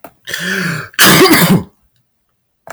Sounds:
Sneeze